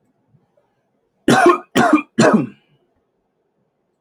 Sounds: Cough